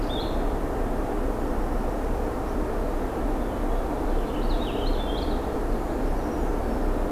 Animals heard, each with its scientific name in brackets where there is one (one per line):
Brown Creeper (Certhia americana)
Purple Finch (Haemorhous purpureus)
Blue-headed Vireo (Vireo solitarius)